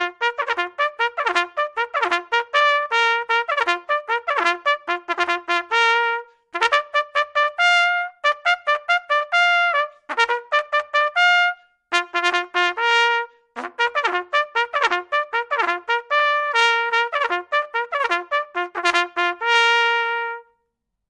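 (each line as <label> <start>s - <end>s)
A medieval trumpet playing a reveille. 0.0s - 20.5s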